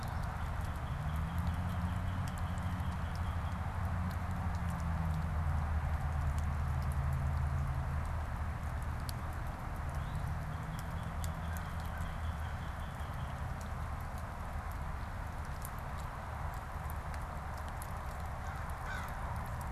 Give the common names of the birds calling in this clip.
Northern Cardinal, American Crow